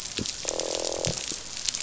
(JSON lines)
{"label": "biophony, croak", "recorder": "SoundTrap 500"}